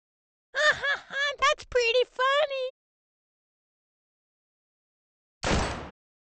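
At the start, laughter can be heard. Then, about 5 seconds in, gunfire is heard.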